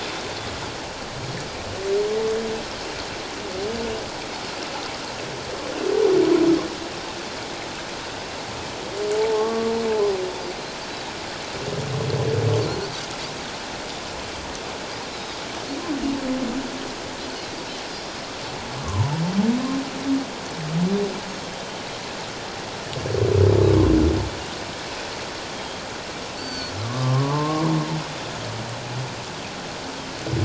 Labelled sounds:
9.1	9.7	humpback whale, 0.81 to 1.2 kHz
15.1	15.4	Pacific white-sided dolphin, 4.7 to 5.5 kHz
17.9	18.2	Pacific white-sided dolphin, 4.8 to 5.2 kHz
18.7	19.1	humpback whale, 0.84 to 1.3 kHz
25.5	26.7	Pacific white-sided dolphin, 1.4 to 6.1 kHz
26.8	27.6	humpback whale, 0.84 to 1.2 kHz

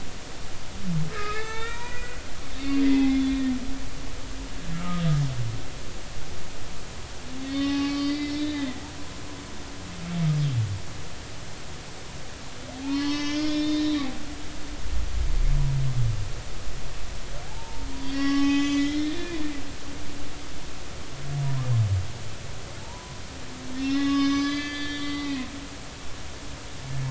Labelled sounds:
1.1	2.2	humpback whale, 0.80 to 3.9 kHz
2.8	3.5	humpback whale, 2.0 to 3.5 kHz
4.7	5.0	humpback whale, 1.2 to 1.4 kHz
7.4	8.8	humpback whale, 0.80 to 5.4 kHz
12.8	14.1	humpback whale, 0.80 to 6.2 kHz
17.5	19.4	humpback whale, 0.80 to 6.9 kHz
22.8	25.4	humpback whale, 0.83 to 6.2 kHz

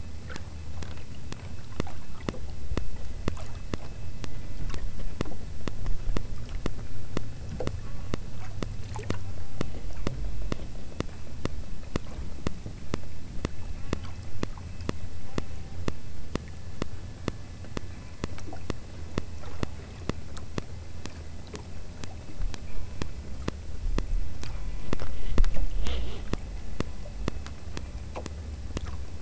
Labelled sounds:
7.9	8.2	killer whale, southern Alaska resident, 0.71 to 2.3 kHz
9.3	9.7	killer whale, southern Alaska resident, 0.62 to 2.6 kHz
13.8	14.3	killer whale, southern Alaska resident, 0.52 to 2.2 kHz
15.3	15.8	killer whale, southern Alaska resident, 0.62 to 3.2 kHz

